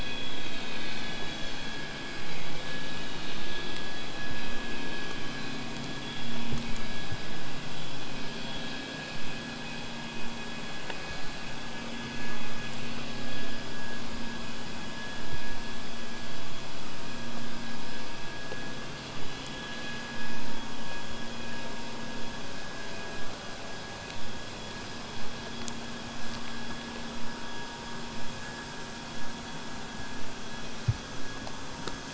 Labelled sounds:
27.1	32.1	vessel noise, 0 to 8.0 kHz

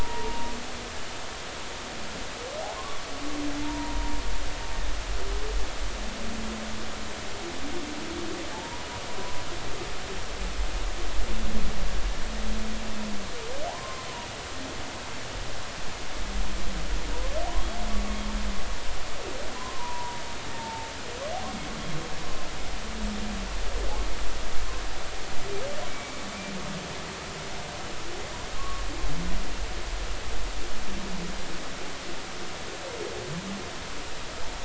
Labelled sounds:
2.8	4.2	humpback whale, 0.86 to 1.2 kHz
8.5	9.4	humpback whale, 0.80 to 1.1 kHz
13.7	14.1	humpback whale, 0.80 to 1.1 kHz
19.5	20.9	humpback whale, 0.83 to 1.1 kHz
25.9	26.2	humpback whale, 2.2 to 2.4 kHz
28.5	28.8	humpback whale, 1.0 to 1.2 kHz

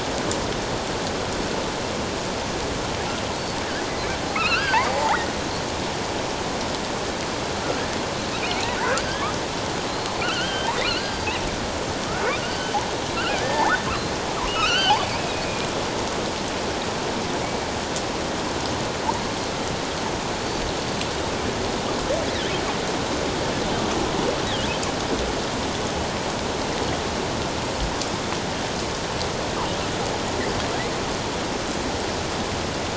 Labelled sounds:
4.3	5.3	killer whale, offshore, 0.78 to 5.0 kHz
9.9	11.3	killer whale, offshore, 1.2 to 4.9 kHz
12.5	12.8	killer whale, offshore, 3.0 to 3.1 kHz
13.1	13.8	killer whale, offshore, 1.3 to 1.9 kHz
14.5	15.4	killer whale, offshore, 1.2 to 3.2 kHz
20.4	20.7	killer whale, offshore, 4.4 to 4.7 kHz

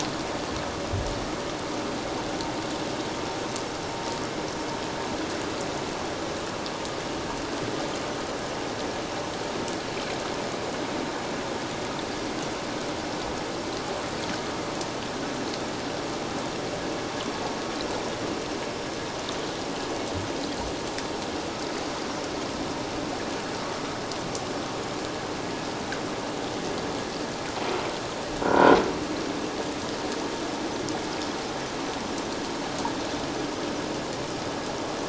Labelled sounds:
28.4	28.8	croaking sound likely from a nearby submerged object, 0.91 to 1.6 kHz

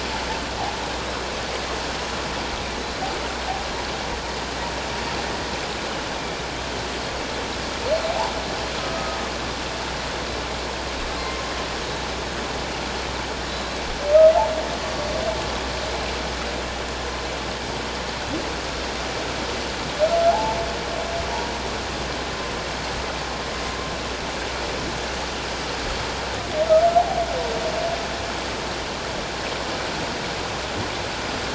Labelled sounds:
8.8	9.2	humpback whale, 1.2 to 1.3 kHz
20.3	20.6	humpback whale, 0.78 to 0.94 kHz

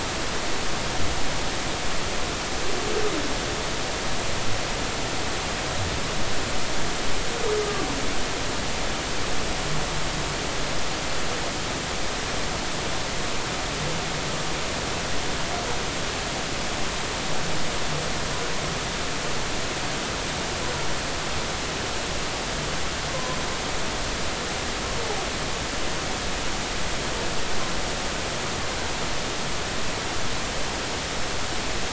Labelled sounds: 7.6	7.9	humpback whale, 1.1 to 1.3 kHz

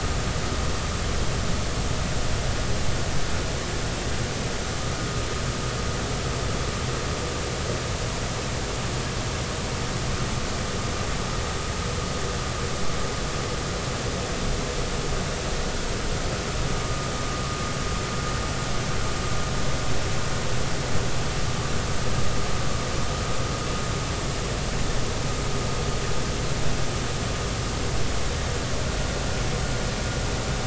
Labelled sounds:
16.8	17.1	vessel noise, 1.2 to 1.3 kHz

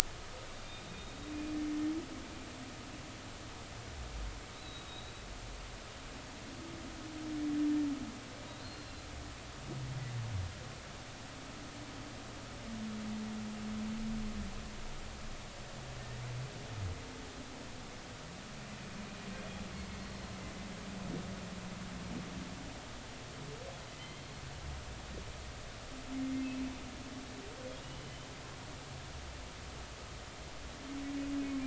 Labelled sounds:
0.6	1.3	humpback whale, 2.3 to 3.8 kHz
4.5	5.2	humpback whale, 3.7 to 4.0 kHz
8.6	9.0	humpback whale, 4.0 to 4.3 kHz
21.0	21.4	humpback whale, 4.1 to 4.3 kHz
23.9	24.3	humpback whale, 2.0 to 3.2 kHz
27.8	28.3	humpback whale, 2.8 to 3.1 kHz

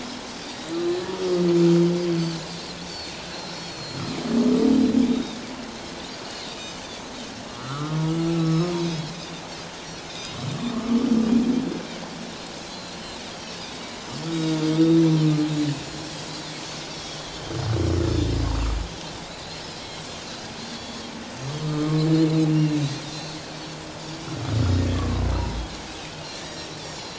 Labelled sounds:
2.1	4.0	Pacific white-sided dolphin, 3.8 to 6.2 kHz
5.0	5.4	Pacific white-sided dolphin, 3.3 to 4.0 kHz
6.6	6.8	Pacific white-sided dolphin, 2.9 to 3.0 kHz
7.5	8.0	humpback whale, 3.7 to 4.2 kHz
7.5	8.0	Pacific white-sided dolphin, 1.1 to 1.5 kHz
8.3	8.8	humpback whale, 1.1 to 1.4 kHz
8.4	9.2	Pacific white-sided dolphin, 3.1 to 5.6 kHz
10.0	10.4	Pacific white-sided dolphin, 3.5 to 6.3 kHz
10.7	11.0	humpback whale, 1.0 to 1.3 kHz
12.6	13.2	Pacific white-sided dolphin, 3.7 to 4.4 kHz
13.6	13.8	Pacific white-sided dolphin, 3.4 to 3.9 kHz
14.3	15.3	Pacific white-sided dolphin, 1.2 to 4.2 kHz
14.7	15.0	humpback whale, 3.5 to 4.0 kHz
16.9	17.6	Pacific white-sided dolphin, 2.9 to 3.5 kHz
19.2	19.6	Pacific white-sided dolphin, 3.6 to 4.3 kHz
20.7	21.0	Pacific white-sided dolphin, 3.3 to 4.7 kHz
21.6	22.1	humpback whale, 1.0 to 1.4 kHz
23.1	24.9	Pacific white-sided dolphin, 4.0 to 7.1 kHz
26.3	27.1	Pacific white-sided dolphin, 1.7 to 7.8 kHz

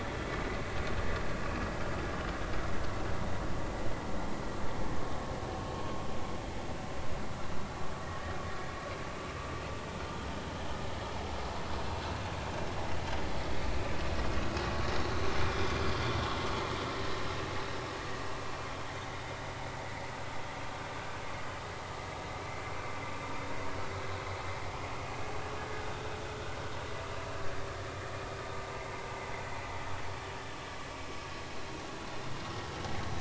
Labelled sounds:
15.5	15.7	vessel noise, 3.3 to 3.7 kHz

